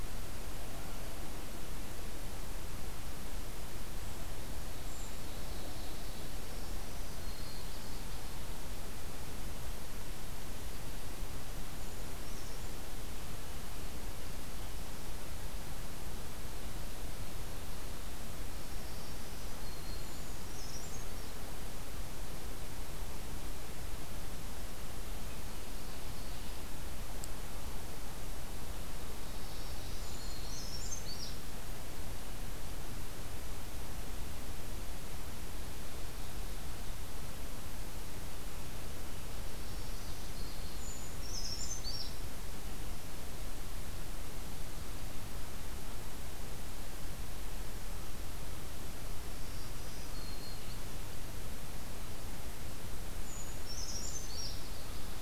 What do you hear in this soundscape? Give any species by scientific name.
Seiurus aurocapilla, Setophaga virens, Geothlypis trichas, Certhia americana